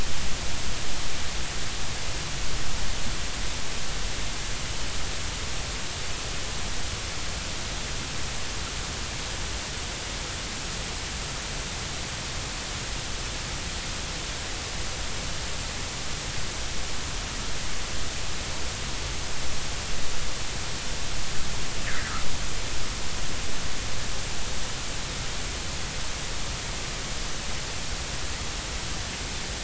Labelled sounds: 21.9	22.1	fish, 1.5 to 2.1 kHz

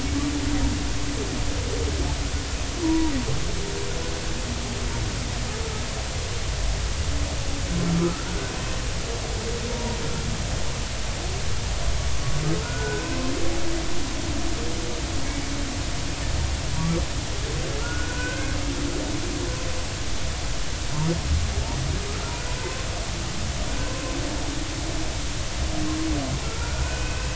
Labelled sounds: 2.8	3.1	humpback whale, 0.86 to 1.0 kHz
8.0	8.5	humpback whale, 1.2 to 1.6 kHz
9.7	10.0	humpback whale, 0.90 to 0.99 kHz
12.6	13.3	humpback whale, 1.3 to 2.7 kHz
17.8	18.5	humpback whale, 1.2 to 1.6 kHz
26.8	27.3	humpback whale, 1.4 to 2.7 kHz

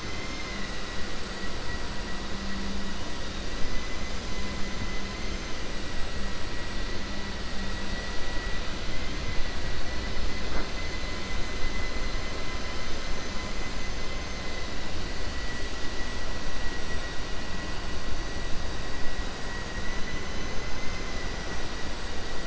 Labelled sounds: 0.0	0.7	vessel noise, 1.9 to 4.2 kHz
19.7	21.1	vessel noise, 1.6 to 4.0 kHz

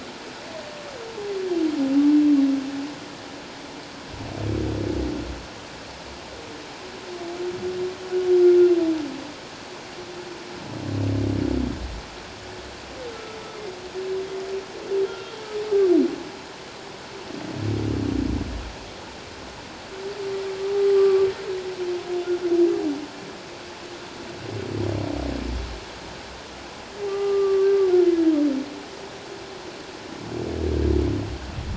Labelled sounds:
13.1	13.4	humpback whale, 1.2 to 1.4 kHz
15.1	15.4	humpback whale, 1.3 to 1.4 kHz
20.9	21.3	humpback whale, 1.1 to 1.3 kHz
27.1	27.7	humpback whale, 1.1 to 1.2 kHz

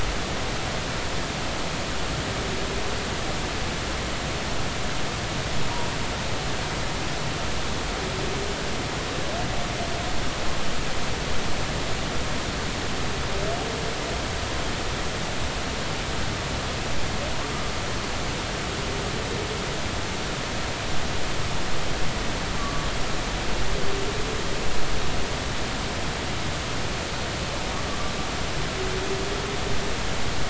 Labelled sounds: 22.6	22.9	humpback whale, 1.1 to 1.2 kHz

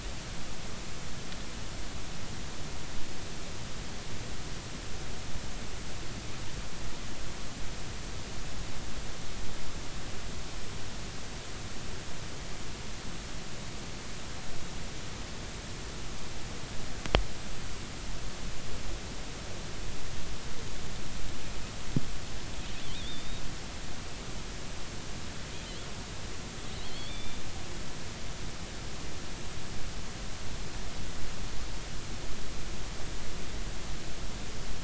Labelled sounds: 22.8	23.4	killer whale, offshore, 3.0 to 3.8 kHz
26.8	27.4	killer whale, offshore, 2.2 to 3.7 kHz

